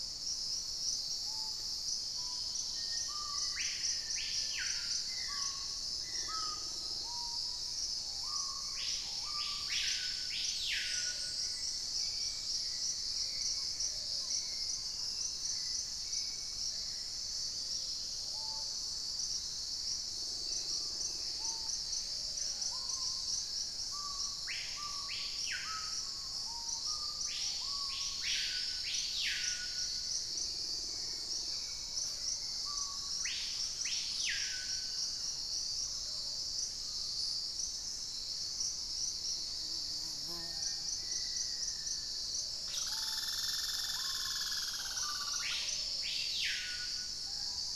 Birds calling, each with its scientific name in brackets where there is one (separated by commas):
Plain-brown Woodcreeper (Dendrocincla fuliginosa), Chestnut-winged Foliage-gleaner (Dendroma erythroptera), Cinereous Mourner (Laniocera hypopyrra), Screaming Piha (Lipaugus vociferans), Hauxwell's Thrush (Turdus hauxwelli), Black-faced Antthrush (Formicarius analis), Dusky-capped Greenlet (Pachysylvia hypoxantha), Thrush-like Wren (Campylorhynchus turdinus), Purple-throated Fruitcrow (Querula purpurata), unidentified bird, Wing-barred Piprites (Piprites chloris), Golden-green Woodpecker (Piculus chrysochloros)